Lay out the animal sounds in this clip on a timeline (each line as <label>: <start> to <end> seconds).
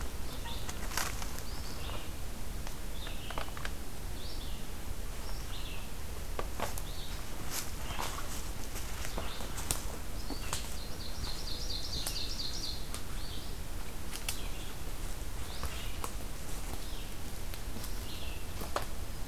Red-eyed Vireo (Vireo olivaceus): 0.0 to 19.3 seconds
Ovenbird (Seiurus aurocapilla): 10.6 to 13.0 seconds